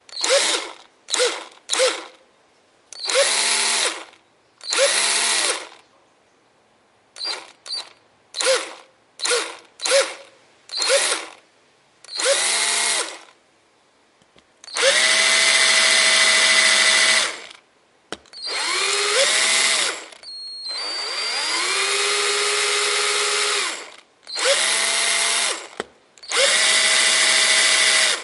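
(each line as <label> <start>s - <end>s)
A small drill is turned on and off repeatedly. 0.0s - 2.2s
A small drilling machine is operating. 2.6s - 6.0s
A small drill is turned on and off repeatedly. 7.0s - 11.5s
A small drilling machine is operating. 12.0s - 13.3s
A small drilling machine is operating. 14.5s - 17.6s
A small drill is turned on and off repeatedly. 18.4s - 28.2s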